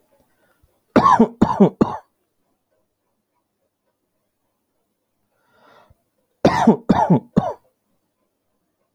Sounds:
Cough